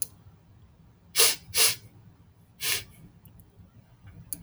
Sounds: Sniff